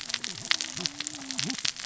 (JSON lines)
{"label": "biophony, cascading saw", "recorder": "SoundTrap 600 or HydroMoth"}